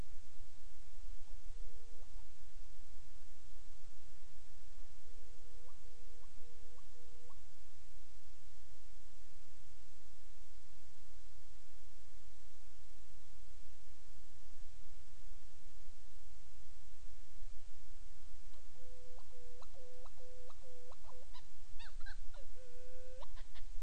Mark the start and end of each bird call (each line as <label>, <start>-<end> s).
Hawaiian Petrel (Pterodroma sandwichensis), 1.1-2.5 s
Hawaiian Petrel (Pterodroma sandwichensis), 4.9-7.6 s
Hawaiian Petrel (Pterodroma sandwichensis), 18.4-23.8 s